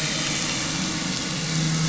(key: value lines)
label: anthrophony, boat engine
recorder: SoundTrap 500